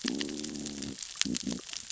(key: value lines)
label: biophony, growl
recorder: SoundTrap 600 or HydroMoth